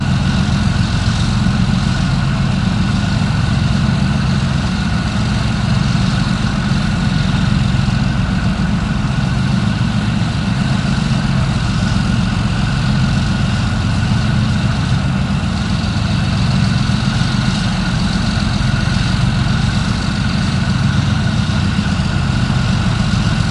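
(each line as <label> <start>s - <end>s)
The constant sound of an engine idling. 0.0s - 23.5s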